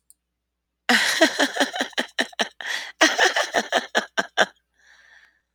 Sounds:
Laughter